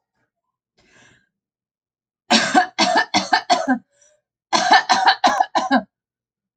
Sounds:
Cough